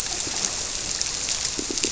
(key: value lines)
label: biophony, squirrelfish (Holocentrus)
recorder: SoundTrap 300